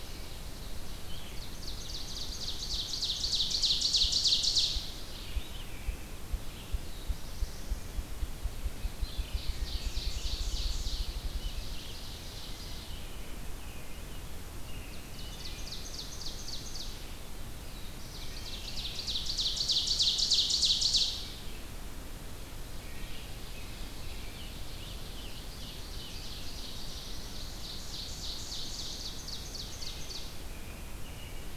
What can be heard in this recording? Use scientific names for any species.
Seiurus aurocapilla, Vireo olivaceus, Bonasa umbellus, Setophaga caerulescens, Turdus migratorius, Hylocichla mustelina, Piranga olivacea